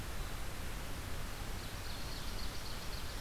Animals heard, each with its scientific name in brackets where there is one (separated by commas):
Ovenbird (Seiurus aurocapilla)